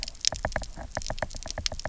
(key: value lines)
label: biophony, knock
recorder: SoundTrap 300